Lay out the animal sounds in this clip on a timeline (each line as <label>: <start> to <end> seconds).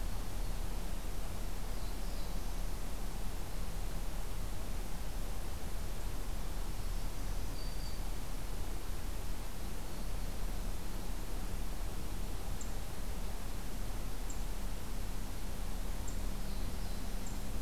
Black-throated Blue Warbler (Setophaga caerulescens): 1.7 to 2.8 seconds
Black-throated Green Warbler (Setophaga virens): 6.6 to 8.1 seconds
Black-throated Green Warbler (Setophaga virens): 9.9 to 10.4 seconds
Black-throated Blue Warbler (Setophaga caerulescens): 16.4 to 17.6 seconds